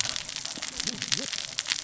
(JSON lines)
{"label": "biophony, cascading saw", "recorder": "SoundTrap 600 or HydroMoth"}